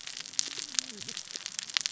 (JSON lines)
{"label": "biophony, cascading saw", "recorder": "SoundTrap 600 or HydroMoth"}